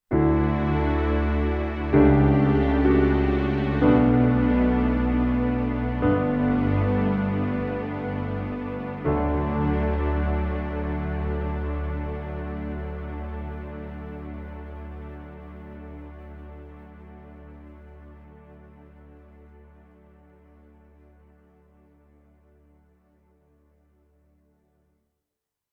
Is a guitar being played?
no